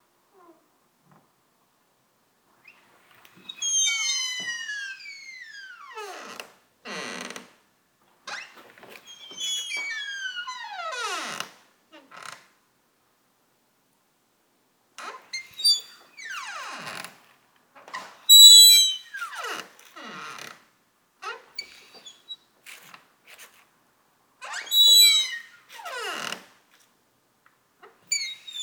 does it sound like the hinge is in need of maintenance?
yes